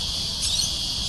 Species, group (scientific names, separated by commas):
Psaltoda plaga, Cicadidae